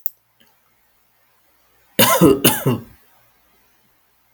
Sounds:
Cough